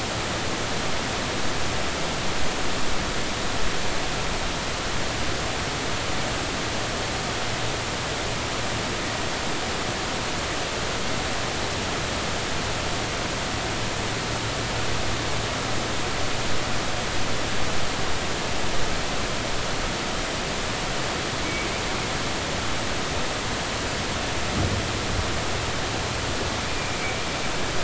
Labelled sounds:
21.4	21.7	humpback whale, 2.2 to 2.4 kHz

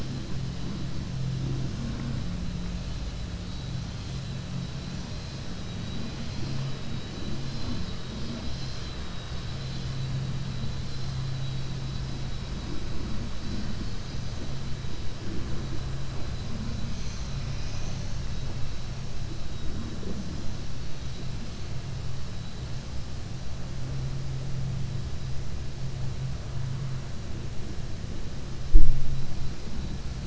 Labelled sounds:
4.8	5.4	vessel noise, 3.6 to 5.6 kHz

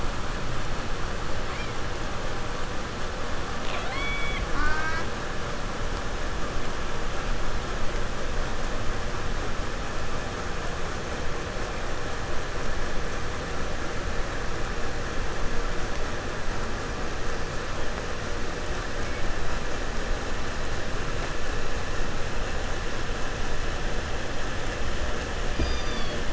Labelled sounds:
1.5	1.8	killer whale, 0.77 to 6.2 kHz
3.5	4.5	killer whale, southern resident, J pod, call S02i, 0.33 to 8.0 kHz
4.5	5.2	killer whale, southern resident, J pod, call S04, 0.47 to 7.7 kHz
18.9	19.4	killer whale, 1.0 to 2.8 kHz
25.4	26.2	killer whale, southern resident, 0.85 to 6.8 kHz

